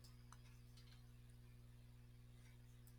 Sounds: Sigh